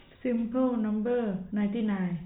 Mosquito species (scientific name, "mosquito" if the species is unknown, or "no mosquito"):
no mosquito